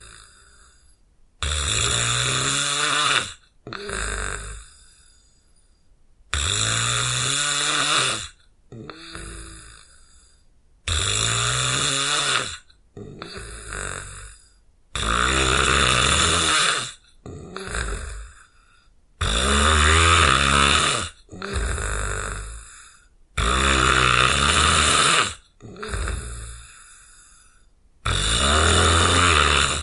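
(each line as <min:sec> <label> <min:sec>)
0:00.0 A person exhales muffledly as the sound fades away. 0:00.3
0:01.3 Rhythmic snoring gradually increases and then fades away. 0:03.4
0:03.6 A person exhales loudly, and the sound fades away. 0:04.7
0:06.3 Rhythmic snoring gradually increases and then fades away. 0:08.3
0:08.7 A person exhales loudly, and the sound fades away. 0:10.1
0:10.8 Rhythmic snoring gradually increases and then fades away. 0:12.7
0:12.9 A person exhales loudly, and the sound fades away. 0:14.5
0:14.9 Rhythmic snoring gradually increases and then fades away. 0:17.0
0:17.2 A person exhales loudly, and the sound fades away. 0:18.5
0:19.1 Rhythmic snoring gradually increases and then fades away. 0:21.2
0:21.3 A person exhales loudly, and the sound fades away. 0:22.9
0:23.3 Rhythmic snoring gradually increases and then fades away. 0:25.4
0:25.5 A person exhales loudly, and the sound fades away. 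0:27.5
0:28.0 Rhythmic snoring gradually increases and then fades away. 0:29.8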